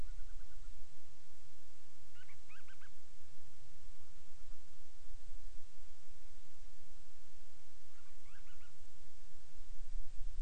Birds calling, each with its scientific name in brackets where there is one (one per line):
Band-rumped Storm-Petrel (Hydrobates castro)